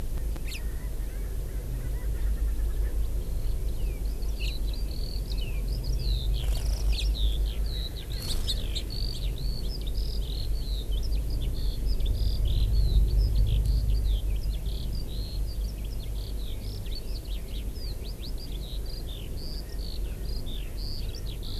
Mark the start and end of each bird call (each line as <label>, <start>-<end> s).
Hawaii Amakihi (Chlorodrepanis virens), 0.4-0.6 s
Erckel's Francolin (Pternistis erckelii), 0.6-2.8 s
Eurasian Skylark (Alauda arvensis), 3.2-21.6 s
House Finch (Haemorhous mexicanus), 4.4-4.5 s
Erckel's Francolin (Pternistis erckelii), 19.5-21.6 s